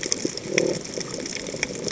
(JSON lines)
{"label": "biophony", "recorder": "HydroMoth"}